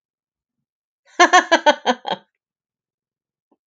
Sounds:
Laughter